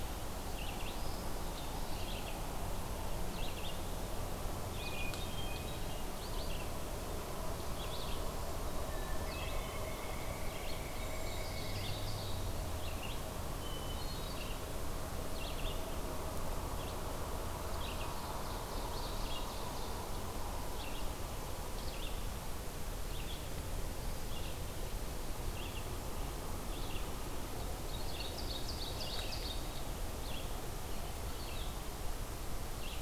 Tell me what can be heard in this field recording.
Red-eyed Vireo, Eastern Wood-Pewee, Hermit Thrush, Pileated Woodpecker, Ovenbird